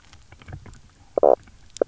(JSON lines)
{"label": "biophony, knock croak", "recorder": "SoundTrap 300"}